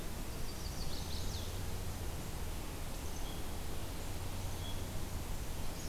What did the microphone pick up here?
Chestnut-sided Warbler